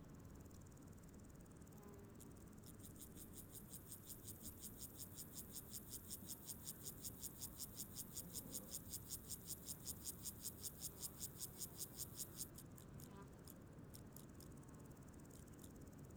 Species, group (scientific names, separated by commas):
Gomphocerus sibiricus, Orthoptera